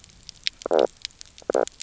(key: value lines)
label: biophony, knock croak
recorder: SoundTrap 300